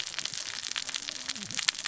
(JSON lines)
{"label": "biophony, cascading saw", "recorder": "SoundTrap 600 or HydroMoth"}